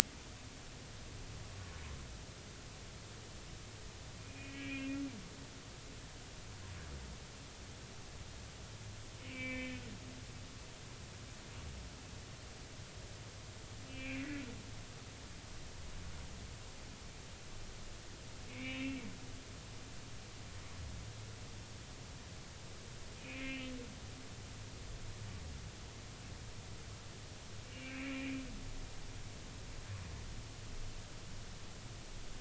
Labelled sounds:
4.2	5.0	humpback whale, 2.1 to 3.0 kHz
9.3	9.8	humpback whale, 1.7 to 2.6 kHz
13.9	14.4	humpback whale, 1.9 to 2.8 kHz
18.5	19.0	humpback whale, 2.0 to 3.7 kHz
23.2	23.7	humpback whale, 2.0 to 3.0 kHz
27.6	28.4	humpback whale, 2.1 to 2.9 kHz

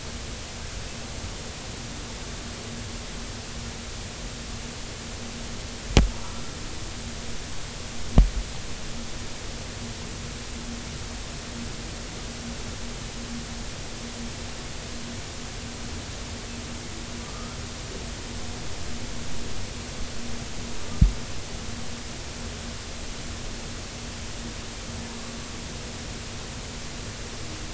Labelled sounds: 6.1	6.4	humpback whale, 0.86 to 1.1 kHz
17.2	17.6	humpback whale, 1.1 to 1.4 kHz

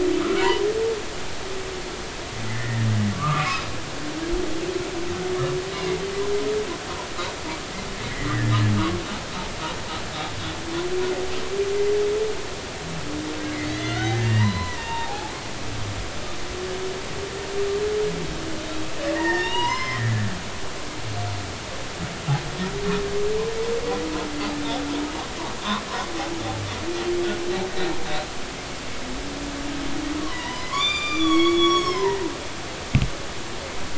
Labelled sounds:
0.2	0.6	humpback whale, 1.2 to 3.2 kHz
1.4	3.7	humpback whale, 0.90 to 5.2 kHz
5.7	6.0	humpback whale, 2.0 to 2.3 kHz
8.1	8.6	humpback whale, 1.5 to 2.2 kHz
13.7	15.3	humpback whale, 0.80 to 4.4 kHz
19.1	20.1	humpback whale, 0.86 to 5.6 kHz
25.6	25.8	humpback whale, 0.96 to 1.2 kHz
30.2	32.2	humpback whale, 0.90 to 7.3 kHz

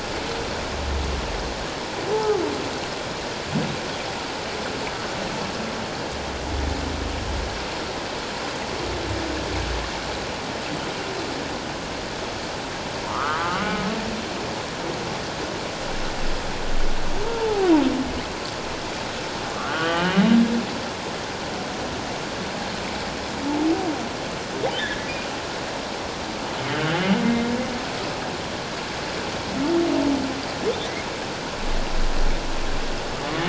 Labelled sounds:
2.1	2.4	humpback whale, 0.78 to 1.0 kHz
13.0	13.9	humpback whale, 0.84 to 2.2 kHz
17.2	17.7	humpback whale, 0.78 to 1.0 kHz
19.5	20.2	humpback whale, 1.1 to 3.2 kHz
24.8	25.1	humpback whale, 1.6 to 2.0 kHz
27.2	27.5	humpback whale, 2.0 to 2.2 kHz

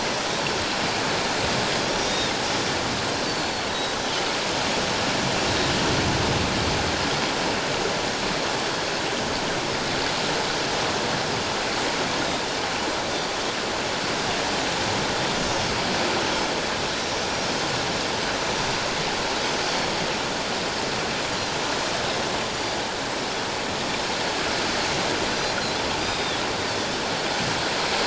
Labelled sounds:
0.0	0.3	Pacific white-sided dolphin, 5.7 to 5.8 kHz
1.9	2.3	Pacific white-sided dolphin, 3.5 to 5.8 kHz
3.3	4.0	Pacific white-sided dolphin, 3.8 to 4.6 kHz
17.0	17.3	Pacific white-sided dolphin, 5.9 to 6.1 kHz
26.0	26.4	Pacific white-sided dolphin, 3.3 to 5.0 kHz

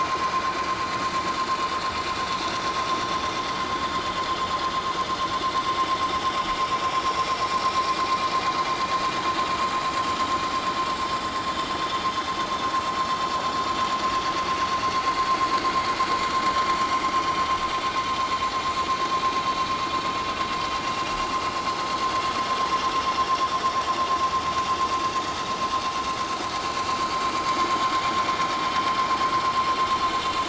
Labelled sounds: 7.1	7.4	vessel noise, 3.8 to 4.1 kHz

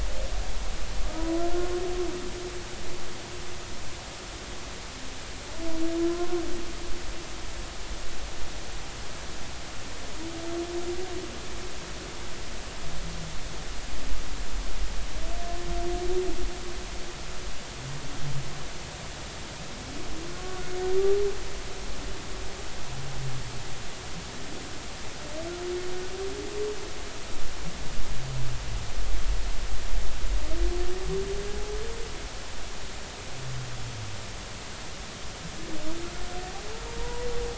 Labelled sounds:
6.1	6.4	humpback whale, 0.99 to 1.1 kHz
20.4	20.6	humpback whale, 1.1 to 1.2 kHz
36.9	37.3	humpback whale, 0.86 to 1.0 kHz

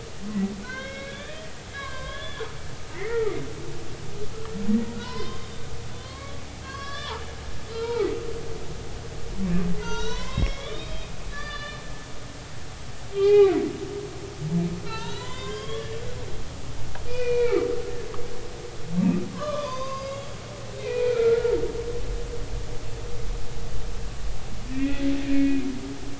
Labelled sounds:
0.6	2.4	humpback whale, 0.99 to 3.9 kHz
2.9	3.4	humpback whale, 1.1 to 2.2 kHz
4.9	5.6	humpback whale, 0.93 to 5.3 kHz
6.0	7.2	humpback whale, 0.83 to 5.4 kHz
7.7	8.1	humpback whale, 0.80 to 4.3 kHz
9.8	11.8	humpback whale, 0.86 to 6.4 kHz
13.1	13.5	humpback whale, 0.80 to 3.4 kHz
14.9	15.9	humpback whale, 0.83 to 4.9 kHz
16.5	17.7	humpback whale, 1.1 to 4.5 kHz
19.3	21.6	humpback whale, 0.96 to 6.4 kHz
24.7	25.1	humpback whale, 1.8 to 2.6 kHz

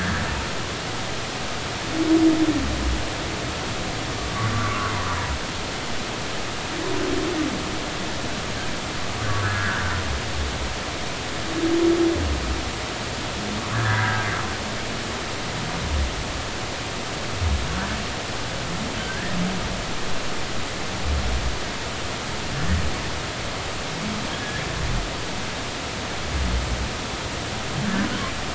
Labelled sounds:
4.5	4.9	humpback whale, 0.99 to 1.6 kHz
9.4	9.8	humpback whale, 1.3 to 2.0 kHz
13.7	14.3	humpback whale, 1.5 to 1.8 kHz
19.0	19.4	humpback whale, 1.5 to 2.0 kHz
24.3	24.6	humpback whale, 1.6 to 1.9 kHz

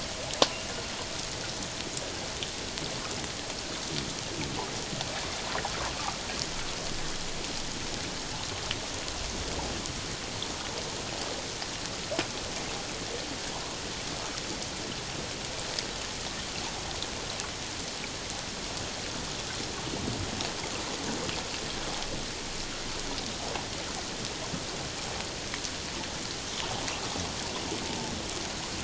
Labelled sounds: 27.8	28.1	humpback whale, 0.81 to 0.94 kHz

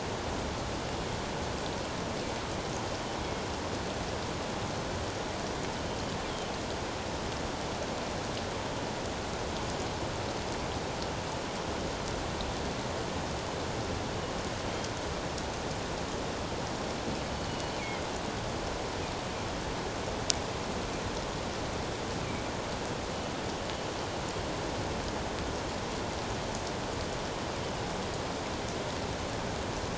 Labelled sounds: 6.3	6.5	killer whale, northern resident, G clan, GG subclan, 3.0 to 3.4 kHz
17.3	17.6	killer whale, northern resident, G clan, GG subclan, 4.3 to 4.5 kHz

